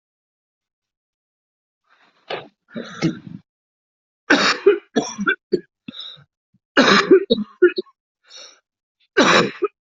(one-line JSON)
{"expert_labels": [{"quality": "good", "cough_type": "wet", "dyspnea": false, "wheezing": false, "stridor": false, "choking": false, "congestion": false, "nothing": true, "diagnosis": "lower respiratory tract infection", "severity": "mild"}], "age": 42, "gender": "male", "respiratory_condition": true, "fever_muscle_pain": true, "status": "symptomatic"}